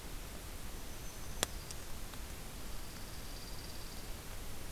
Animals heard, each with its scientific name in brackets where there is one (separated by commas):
Black-throated Green Warbler (Setophaga virens), Dark-eyed Junco (Junco hyemalis)